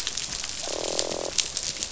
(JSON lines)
{"label": "biophony, croak", "recorder": "SoundTrap 500"}